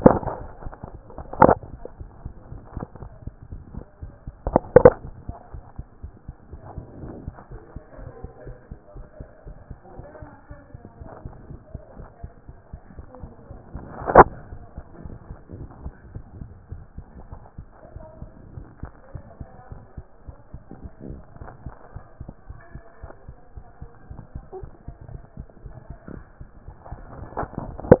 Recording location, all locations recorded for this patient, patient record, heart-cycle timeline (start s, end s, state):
mitral valve (MV)
aortic valve (AV)+pulmonary valve (PV)+tricuspid valve (TV)+mitral valve (MV)
#Age: Child
#Sex: Male
#Height: 124.0 cm
#Weight: 25.8 kg
#Pregnancy status: False
#Murmur: Present
#Murmur locations: mitral valve (MV)+tricuspid valve (TV)
#Most audible location: tricuspid valve (TV)
#Systolic murmur timing: Early-systolic
#Systolic murmur shape: Plateau
#Systolic murmur grading: I/VI
#Systolic murmur pitch: Low
#Systolic murmur quality: Harsh
#Diastolic murmur timing: nan
#Diastolic murmur shape: nan
#Diastolic murmur grading: nan
#Diastolic murmur pitch: nan
#Diastolic murmur quality: nan
#Outcome: Normal
#Campaign: 2014 screening campaign
0.00	5.04	unannotated
5.04	5.12	S1
5.12	5.26	systole
5.26	5.34	S2
5.34	5.52	diastole
5.52	5.64	S1
5.64	5.78	systole
5.78	5.86	S2
5.86	6.02	diastole
6.02	6.12	S1
6.12	6.26	systole
6.26	6.36	S2
6.36	6.52	diastole
6.52	6.62	S1
6.62	6.76	systole
6.76	6.84	S2
6.84	7.00	diastole
7.00	7.10	S1
7.10	7.26	systole
7.26	7.34	S2
7.34	7.50	diastole
7.50	7.62	S1
7.62	7.74	systole
7.74	7.82	S2
7.82	7.98	diastole
7.98	8.10	S1
8.10	8.22	systole
8.22	8.30	S2
8.30	8.46	diastole
8.46	8.56	S1
8.56	8.70	systole
8.70	8.78	S2
8.78	8.96	diastole
8.96	9.06	S1
9.06	9.18	systole
9.18	9.28	S2
9.28	9.46	diastole
9.46	9.56	S1
9.56	9.70	systole
9.70	9.78	S2
9.78	9.96	diastole
9.96	10.06	S1
10.06	10.22	systole
10.22	10.30	S2
10.30	10.50	diastole
10.50	10.60	S1
10.60	10.74	systole
10.74	10.82	S2
10.82	11.00	diastole
11.00	11.10	S1
11.10	11.24	systole
11.24	11.34	S2
11.34	11.48	diastole
11.48	11.60	S1
11.60	11.72	systole
11.72	11.82	S2
11.82	11.98	diastole
11.98	12.08	S1
12.08	12.22	systole
12.22	12.32	S2
12.32	12.48	diastole
12.48	12.58	S1
12.58	12.72	systole
12.72	12.80	S2
12.80	12.96	diastole
12.96	13.06	S1
13.06	13.22	systole
13.22	13.32	S2
13.32	13.50	diastole
13.50	28.00	unannotated